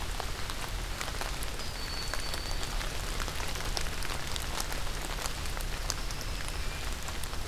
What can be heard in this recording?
Broad-winged Hawk